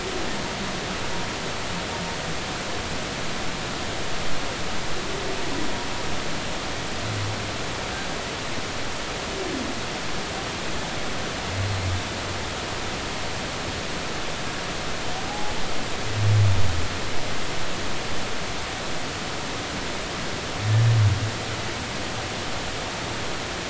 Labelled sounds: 15.3	15.6	humpback whale, 0.80 to 0.90 kHz

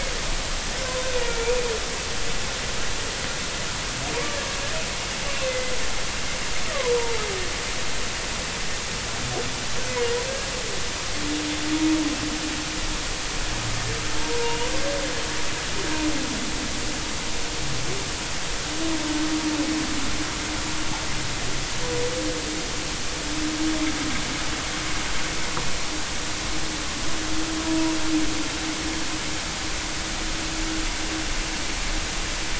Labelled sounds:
1.3	1.6	humpback whale, 2.2 to 2.5 kHz
5.3	5.7	humpback whale, 2.0 to 2.9 kHz
6.7	7.1	humpback whale, 0.86 to 1.2 kHz
14.4	14.7	humpback whale, 2.7 to 3.0 kHz

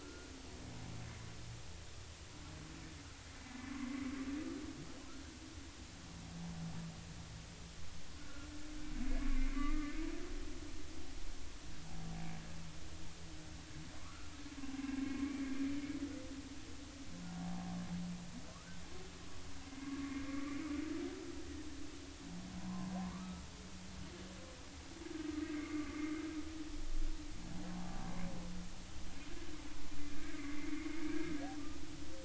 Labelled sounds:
0.0	0.3	humpback whale, 1.2 to 1.5 kHz
8.2	10.0	humpback whale, 1.0 to 2.3 kHz
14.0	15.2	humpback whale, 0.99 to 1.8 kHz
17.3	17.7	humpback whale, 0.80 to 0.93 kHz
18.5	18.8	humpback whale, 1.1 to 1.6 kHz
19.8	20.6	humpback whale, 0.93 to 2.5 kHz
22.6	23.5	humpback whale, 0.86 to 1.4 kHz
25.6	26.0	humpback whale, 1.1 to 1.2 kHz
27.7	28.0	humpback whale, 0.80 to 0.90 kHz
30.2	31.3	humpback whale, 1.5 to 2.3 kHz

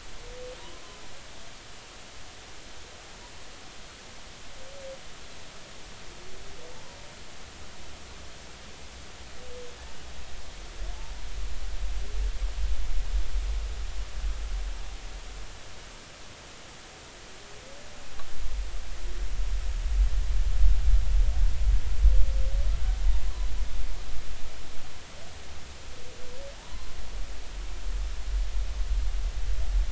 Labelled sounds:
26.6	27.0	humpback whale, 0.80 to 1.1 kHz

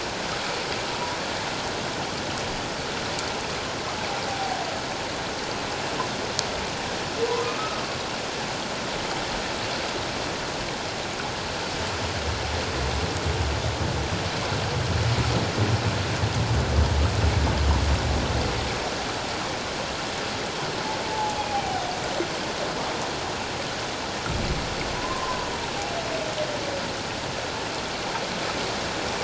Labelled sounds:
0.9	1.2	humpback whale, 0.94 to 1.1 kHz
4.3	4.6	humpback whale, 0.78 to 0.84 kHz
7.4	7.8	humpback whale, 1.1 to 1.3 kHz
21.0	21.8	humpback whale, 0.78 to 0.91 kHz
24.9	25.5	humpback whale, 0.94 to 1.1 kHz

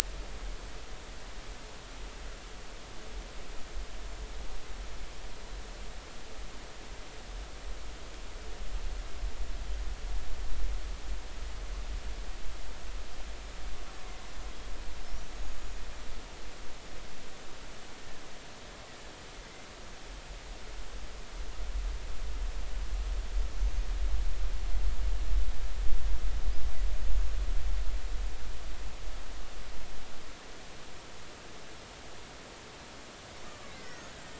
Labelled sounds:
15.3	15.8	killer whale, Bigg's (transient), 6.4 to 6.9 kHz
18.0	18.2	killer whale, Bigg's (transient), 1.6 to 1.9 kHz
23.6	23.9	killer whale, Bigg's (transient), 6.0 to 6.6 kHz
33.6	34.1	killer whale, Bigg's (transient), 1.2 to 2.3 kHz

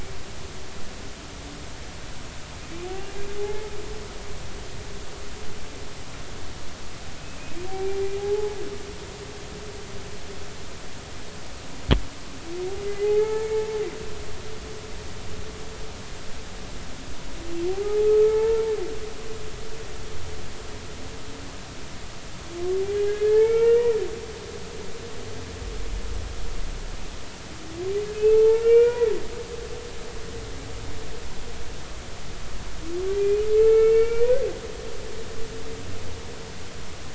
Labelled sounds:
3.4	3.7	humpback whale, 0.80 to 2.2 kHz
7.7	8.6	humpback whale, 0.80 to 2.4 kHz
12.9	13.7	humpback whale, 0.80 to 2.2 kHz
17.7	18.6	humpback whale, 0.80 to 2.3 kHz
23.4	24.6	humpback whale, 1.3 to 2.9 kHz
28.2	29.1	humpback whale, 0.83 to 2.9 kHz
33.1	34.3	humpback whale, 0.83 to 2.6 kHz

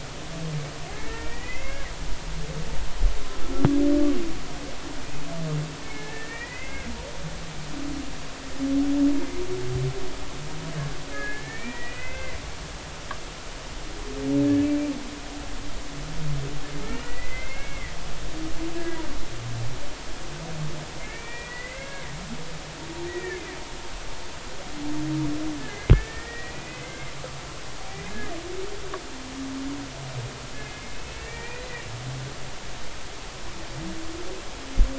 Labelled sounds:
0.9	1.9	humpback whale, 1.6 to 2.8 kHz
5.8	6.9	humpback whale, 1.7 to 2.7 kHz
11.1	12.4	humpback whale, 1.4 to 2.7 kHz
16.8	17.9	humpback whale, 1.5 to 2.4 kHz
21.0	22.1	humpback whale, 1.5 to 2.5 kHz
23.1	23.6	humpback whale, 1.7 to 2.5 kHz
25.9	27.1	humpback whale, 1.7 to 2.6 kHz
27.9	28.2	humpback whale, 1.9 to 2.5 kHz
30.5	31.9	humpback whale, 1.8 to 2.8 kHz

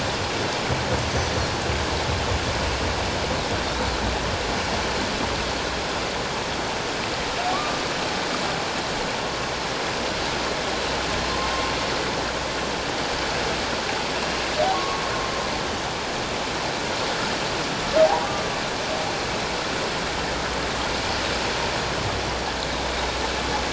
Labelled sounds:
3.7	3.9	humpback whale, 3.6 to 4.0 kHz
7.5	7.8	humpback whale, 1.1 to 1.2 kHz
14.7	15.0	humpback whale, 1.0 to 1.2 kHz
18.2	18.5	humpback whale, 1.1 to 1.2 kHz

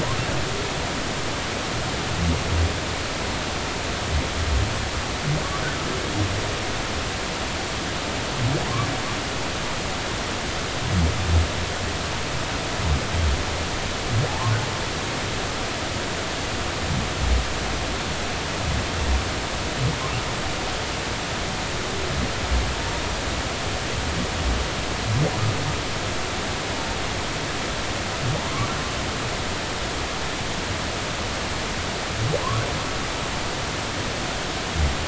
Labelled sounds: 14.3	14.5	humpback whale, 0.80 to 1.2 kHz

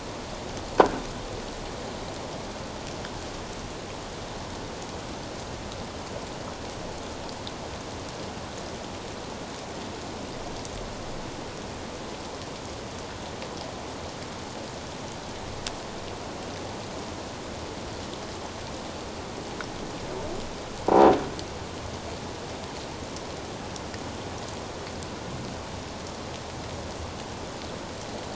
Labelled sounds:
20.9	21.2	croaking sound likely from a nearby submerged object, 0.78 to 1.0 kHz

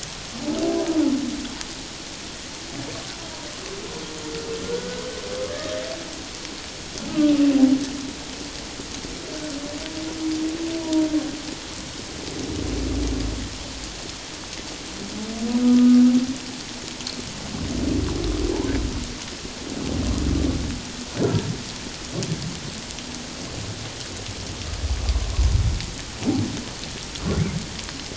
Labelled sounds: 4.6	5.0	humpback whale, 1.3 to 1.6 kHz
10.8	11.1	humpback whale, 0.91 to 1.0 kHz
15.6	16.0	humpback whale, 1.2 to 1.3 kHz

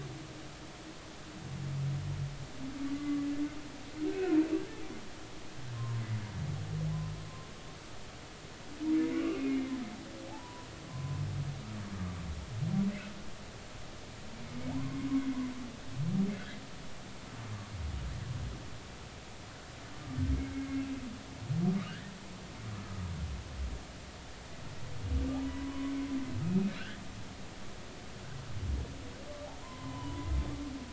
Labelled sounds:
3.0	3.2	humpback whale, 1.1 to 1.2 kHz
3.9	4.4	humpback whale, 1.3 to 2.1 kHz
5.7	6.0	humpback whale, 0.90 to 1.1 kHz
8.9	9.7	humpback whale, 1.1 to 2.9 kHz
10.3	11.2	humpback whale, 0.80 to 1.1 kHz
14.4	14.7	humpback whale, 2.1 to 2.3 kHz
21.9	22.1	humpback whale, 1.4 to 2.0 kHz
25.4	25.9	humpback whale, 0.93 to 2.1 kHz
26.4	27.0	humpback whale, 1.3 to 2.6 kHz
29.6	30.3	humpback whale, 0.86 to 3.1 kHz

